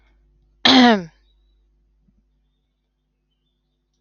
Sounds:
Cough